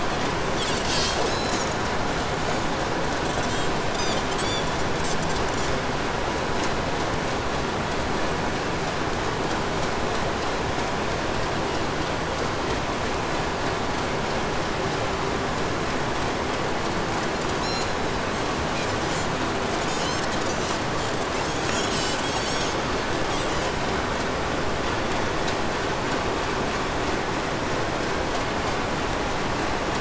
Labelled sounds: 0.6	6.0	Pacific white-sided dolphin, 1.4 to 8.0 kHz
17.4	18.2	Pacific white-sided dolphin, 1.7 to 8.0 kHz
18.6	23.9	Pacific white-sided dolphin, 1.5 to 8.0 kHz

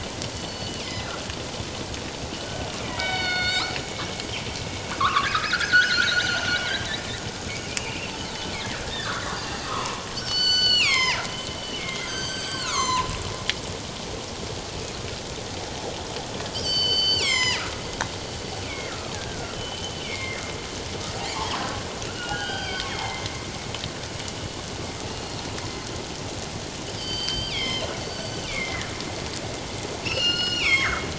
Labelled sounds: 0.4	1.1	killer whale, northern resident, G clan, 4.4 to 5.2 kHz
2.4	3.7	killer whale, northern resident, G clan, 1.4 to 5.2 kHz
5.0	8.0	killer whale, northern resident, G clan, 1.0 to 3.5 kHz
8.5	11.2	killer whale, northern resident, G clan, 0.88 to 7.6 kHz
11.6	13.1	killer whale, northern resident, G clan, 0.84 to 7.8 kHz
14.7	14.9	killer whale, northern resident, G clan, 2.5 to 2.8 kHz
16.5	17.9	killer whale, northern resident, G clan, 0.91 to 7.9 kHz
18.6	20.4	killer whale, northern resident, G clan, 1.3 to 3.2 kHz
21.3	23.3	killer whale, northern resident, G clan, 0.84 to 4.8 kHz
25.1	25.4	killer whale, northern resident, G clan, 2.6 to 4.4 kHz
27.0	28.9	killer whale, northern resident, G clan, 1.7 to 7.8 kHz
30.0	31.1	killer whale, northern resident, G clan, 1.0 to 6.5 kHz

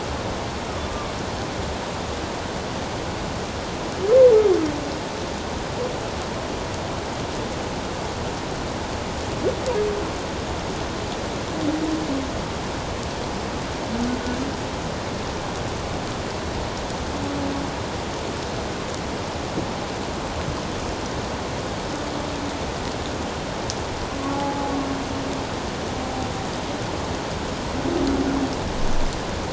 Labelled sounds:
0.8	1.1	humpback whale, 1.1 to 1.2 kHz
24.3	24.7	humpback whale, 0.81 to 0.91 kHz

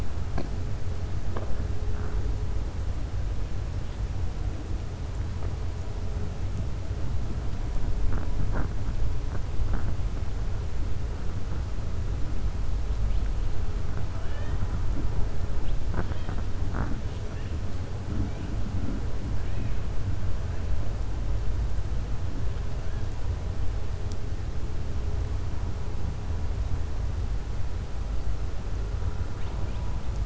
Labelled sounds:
14.2	14.7	killer whale, southern resident, 1.0 to 3.8 kHz

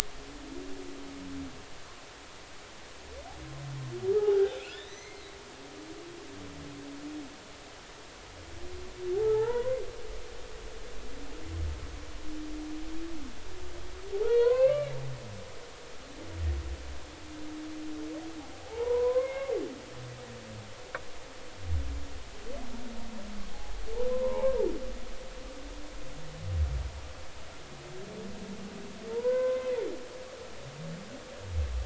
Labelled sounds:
4.2	5.3	humpback whale, 0.80 to 4.3 kHz
9.2	9.8	humpback whale, 0.80 to 2.0 kHz
14.1	14.9	humpback whale, 0.80 to 4.4 kHz
18.6	19.5	humpback whale, 0.80 to 2.2 kHz
23.5	24.6	humpback whale, 0.80 to 1.1 kHz
29.1	29.7	humpback whale, 0.86 to 1.6 kHz

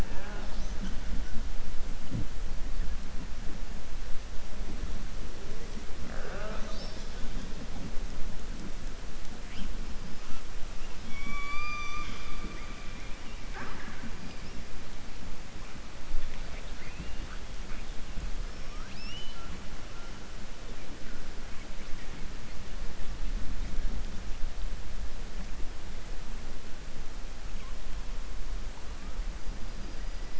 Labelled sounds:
18.5	19.5	killer whale, southern resident, 1.2 to 6.5 kHz

